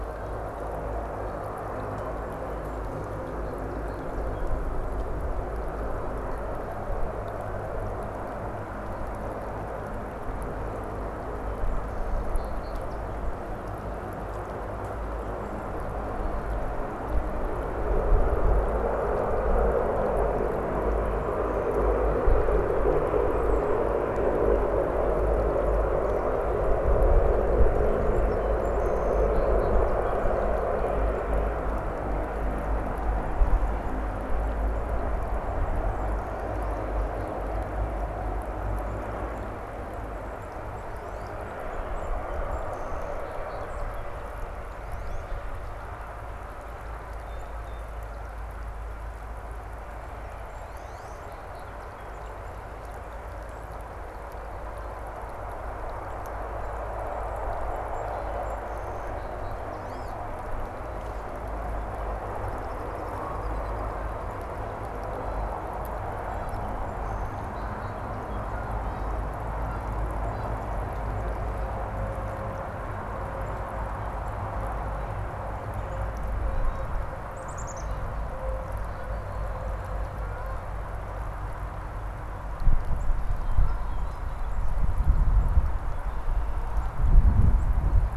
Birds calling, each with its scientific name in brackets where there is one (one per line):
Canada Goose (Branta canadensis)
unidentified bird
Black-capped Chickadee (Poecile atricapillus)
Song Sparrow (Melospiza melodia)
Wood Duck (Aix sponsa)